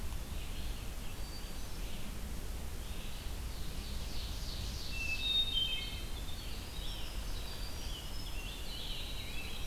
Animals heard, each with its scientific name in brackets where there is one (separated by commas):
Winter Wren (Troglodytes hiemalis), Hermit Thrush (Catharus guttatus), Red-eyed Vireo (Vireo olivaceus), Ovenbird (Seiurus aurocapilla)